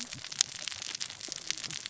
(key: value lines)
label: biophony, cascading saw
recorder: SoundTrap 600 or HydroMoth